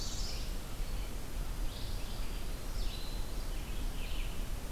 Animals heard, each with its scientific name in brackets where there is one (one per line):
Red-eyed Vireo (Vireo olivaceus)
Northern Parula (Setophaga americana)
Black-throated Green Warbler (Setophaga virens)